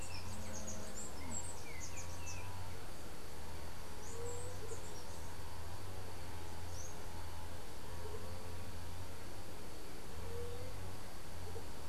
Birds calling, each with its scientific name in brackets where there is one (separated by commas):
White-tipped Dove (Leptotila verreauxi), Chestnut-capped Brushfinch (Arremon brunneinucha)